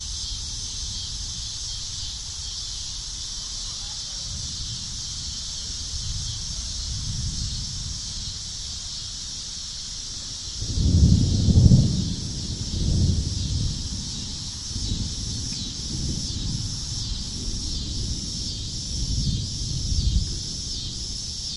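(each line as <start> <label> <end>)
10.6 Thunder roars. 13.9
19.0 Thunder roars. 20.3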